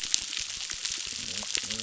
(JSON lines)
{"label": "biophony", "recorder": "SoundTrap 600"}